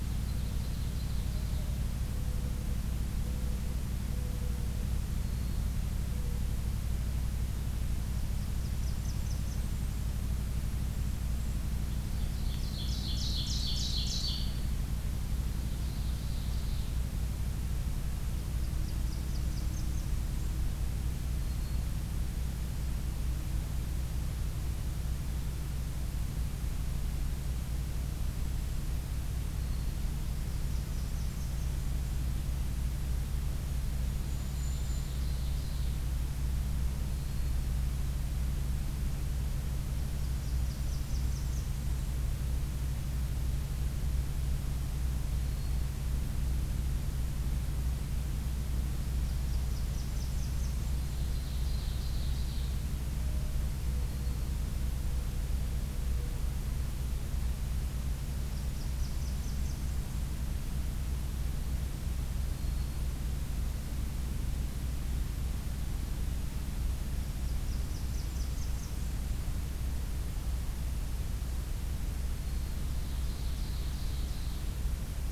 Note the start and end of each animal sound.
0.0s-1.7s: Ovenbird (Seiurus aurocapilla)
0.3s-6.5s: Mourning Dove (Zenaida macroura)
5.1s-5.7s: Black-throated Green Warbler (Setophaga virens)
8.2s-10.2s: Blackburnian Warbler (Setophaga fusca)
11.9s-14.6s: Ovenbird (Seiurus aurocapilla)
15.5s-16.9s: Ovenbird (Seiurus aurocapilla)
18.4s-20.6s: Blackburnian Warbler (Setophaga fusca)
21.3s-21.9s: Black-throated Green Warbler (Setophaga virens)
29.5s-30.1s: Black-throated Green Warbler (Setophaga virens)
30.2s-32.2s: Blackburnian Warbler (Setophaga fusca)
33.6s-35.2s: Golden-crowned Kinglet (Regulus satrapa)
34.4s-36.0s: Ovenbird (Seiurus aurocapilla)
37.1s-37.6s: Black-throated Green Warbler (Setophaga virens)
39.9s-42.1s: Blackburnian Warbler (Setophaga fusca)
45.4s-45.9s: Black-throated Green Warbler (Setophaga virens)
49.0s-51.1s: Blackburnian Warbler (Setophaga fusca)
50.9s-52.8s: Ovenbird (Seiurus aurocapilla)
53.1s-56.5s: Mourning Dove (Zenaida macroura)
53.9s-54.5s: Black-throated Green Warbler (Setophaga virens)
58.1s-60.1s: Blackburnian Warbler (Setophaga fusca)
62.5s-63.1s: Black-throated Green Warbler (Setophaga virens)
67.2s-69.4s: Blackburnian Warbler (Setophaga fusca)
72.4s-72.9s: Black-throated Green Warbler (Setophaga virens)
72.8s-74.7s: Ovenbird (Seiurus aurocapilla)

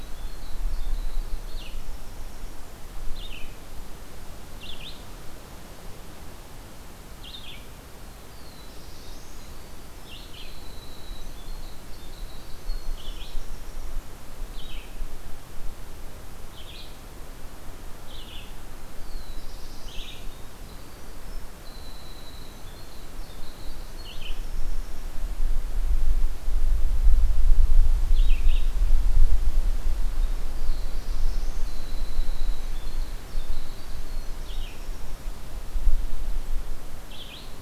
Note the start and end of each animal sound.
0.0s-2.5s: Winter Wren (Troglodytes hiemalis)
0.0s-28.9s: Red-eyed Vireo (Vireo olivaceus)
8.3s-9.5s: Black-throated Blue Warbler (Setophaga caerulescens)
10.3s-14.0s: Winter Wren (Troglodytes hiemalis)
18.9s-20.2s: Black-throated Blue Warbler (Setophaga caerulescens)
20.4s-25.1s: Winter Wren (Troglodytes hiemalis)
30.3s-31.7s: Black-throated Blue Warbler (Setophaga caerulescens)
31.7s-35.2s: Winter Wren (Troglodytes hiemalis)
34.4s-37.6s: Red-eyed Vireo (Vireo olivaceus)

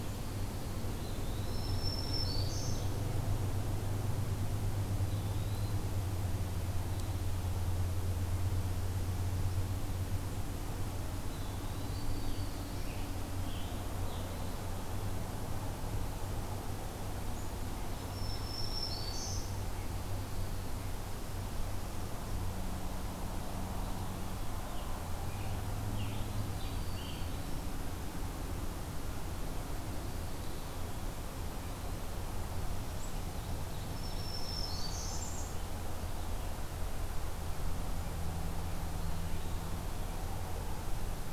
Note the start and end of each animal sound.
0.8s-1.7s: Eastern Wood-Pewee (Contopus virens)
1.2s-3.1s: Black-throated Green Warbler (Setophaga virens)
4.8s-5.8s: Eastern Wood-Pewee (Contopus virens)
11.1s-12.1s: Eastern Wood-Pewee (Contopus virens)
11.9s-14.4s: Scarlet Tanager (Piranga olivacea)
17.5s-19.3s: Ovenbird (Seiurus aurocapilla)
18.0s-19.7s: Black-throated Green Warbler (Setophaga virens)
24.4s-27.7s: Scarlet Tanager (Piranga olivacea)
26.1s-27.7s: Black-throated Green Warbler (Setophaga virens)
33.4s-34.7s: Ovenbird (Seiurus aurocapilla)
33.8s-35.3s: Black-throated Green Warbler (Setophaga virens)
34.2s-35.7s: Blackburnian Warbler (Setophaga fusca)

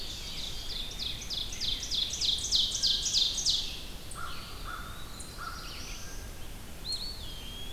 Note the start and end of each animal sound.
0.0s-2.4s: Rose-breasted Grosbeak (Pheucticus ludovicianus)
0.0s-3.9s: Ovenbird (Seiurus aurocapilla)
0.0s-7.7s: Red-eyed Vireo (Vireo olivaceus)
2.7s-3.2s: Blue Jay (Cyanocitta cristata)
4.0s-6.1s: American Crow (Corvus brachyrhynchos)
4.1s-5.6s: Eastern Wood-Pewee (Contopus virens)
4.9s-6.4s: Black-throated Blue Warbler (Setophaga caerulescens)
6.7s-7.7s: Eastern Wood-Pewee (Contopus virens)

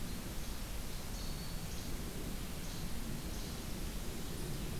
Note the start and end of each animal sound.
0.9s-1.7s: Black-throated Green Warbler (Setophaga virens)
1.0s-2.0s: Least Flycatcher (Empidonax minimus)
2.5s-3.6s: Least Flycatcher (Empidonax minimus)

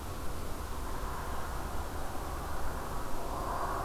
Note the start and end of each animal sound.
3.1s-3.7s: Black-throated Green Warbler (Setophaga virens)

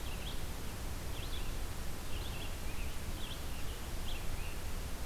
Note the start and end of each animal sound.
0.0s-5.1s: Red-eyed Vireo (Vireo olivaceus)

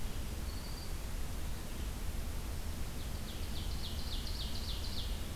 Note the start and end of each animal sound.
0.0s-1.2s: Black-throated Green Warbler (Setophaga virens)
2.9s-5.4s: Ovenbird (Seiurus aurocapilla)

